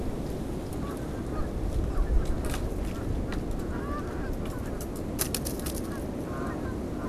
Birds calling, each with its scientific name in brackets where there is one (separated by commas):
Canada Goose (Branta canadensis)